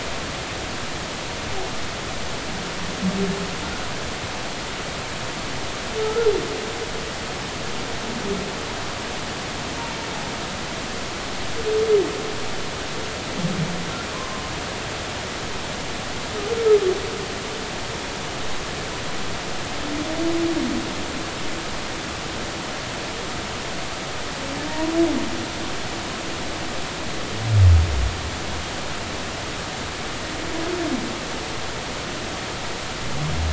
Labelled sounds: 6.0	6.3	humpback whale, 1.2 to 1.4 kHz
14.1	14.4	humpback whale, 0.99 to 1.1 kHz

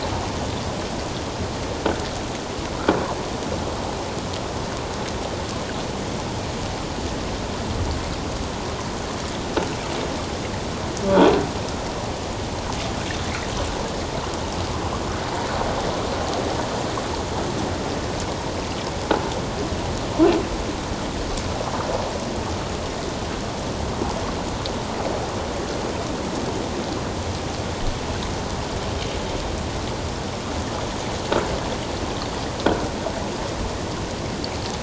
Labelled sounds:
11.1	11.3	croaking sound likely from a nearby submerged object, 3.2 to 3.6 kHz

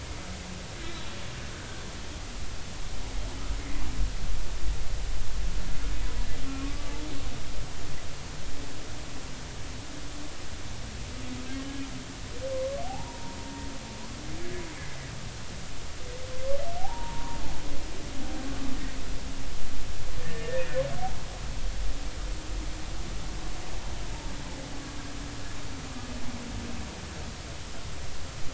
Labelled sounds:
6.6	6.9	humpback whale, 1.1 to 1.2 kHz
11.6	11.9	humpback whale, 2.9 to 3.1 kHz
12.8	13.7	humpback whale, 0.80 to 1.0 kHz
16.8	17.4	humpback whale, 0.80 to 1.1 kHz
20.2	20.8	humpback whale, 1.7 to 2.6 kHz

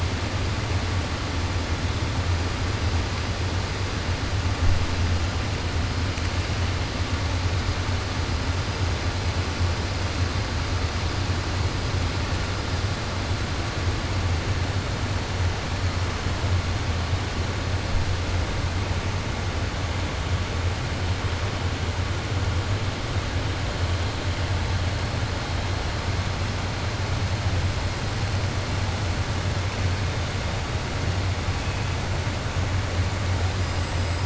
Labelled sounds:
33.7	34.2	killer whale, 7.5 to 8.0 kHz

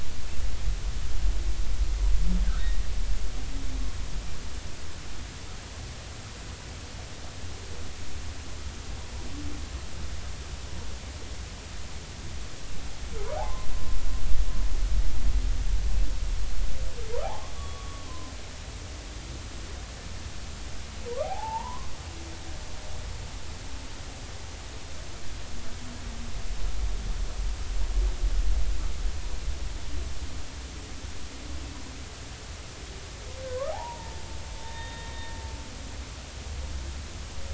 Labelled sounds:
13.4	13.7	humpback whale, 0.80 to 1.1 kHz
17.2	18.3	humpback whale, 0.80 to 1.2 kHz
21.2	21.9	humpback whale, 0.80 to 1.1 kHz
33.5	34.2	humpback whale, 0.80 to 1.3 kHz
34.6	35.1	humpback whale, 0.86 to 3.8 kHz

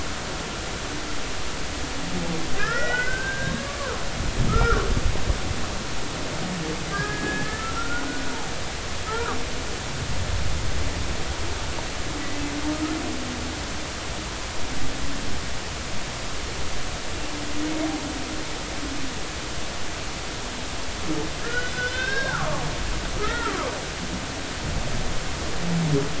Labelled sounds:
2.6	3.7	humpback whale, 1.2 to 5.5 kHz
4.5	4.9	humpback whale, 1.1 to 1.6 kHz
6.9	8.2	humpback whale, 1.2 to 1.8 kHz
9.1	9.4	humpback whale, 1.1 to 1.5 kHz
21.4	22.6	humpback whale, 1.0 to 4.9 kHz
23.2	23.6	humpback whale, 1.1 to 2.0 kHz

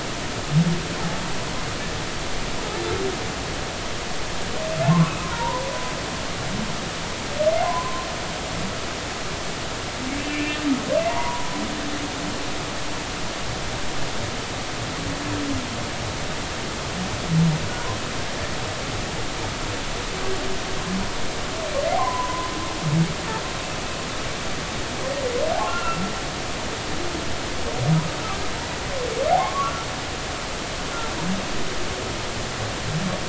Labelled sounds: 4.9	5.7	humpback whale, 0.86 to 1.2 kHz
7.6	8.1	humpback whale, 0.96 to 1.1 kHz
10.2	10.6	humpback whale, 1.7 to 2.4 kHz
11.1	11.6	humpback whale, 0.90 to 1.1 kHz
22.0	22.5	humpback whale, 0.93 to 1.1 kHz
25.7	26.0	humpback whale, 1.2 to 2.8 kHz
29.4	29.9	humpback whale, 0.99 to 1.5 kHz

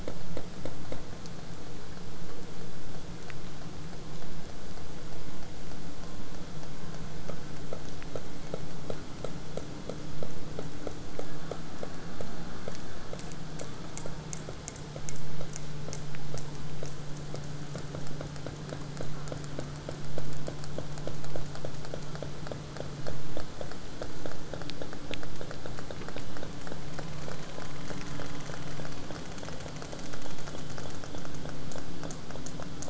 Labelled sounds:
0.0	5.0	vessel noise, 0 to 8.0 kHz
12.7	16.5	killer whale, southern resident, 1.7 to 8.0 kHz

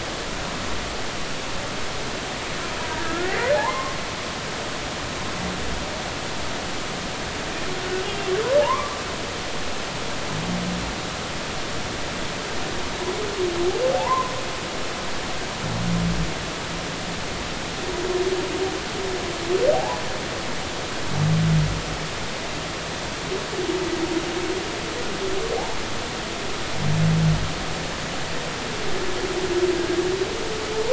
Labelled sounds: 3.0	4.0	humpback whale, 0.80 to 1.5 kHz
8.6	8.9	humpback whale, 0.80 to 1.2 kHz
13.9	14.3	humpback whale, 0.80 to 1.1 kHz
19.7	20.0	humpback whale, 0.80 to 1.1 kHz

